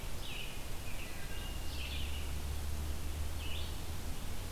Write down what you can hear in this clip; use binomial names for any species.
Turdus migratorius, Hylocichla mustelina